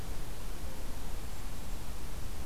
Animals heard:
Golden-crowned Kinglet (Regulus satrapa)

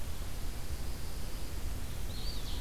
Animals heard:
Eastern Wood-Pewee (Contopus virens)
Pine Warbler (Setophaga pinus)
Ovenbird (Seiurus aurocapilla)

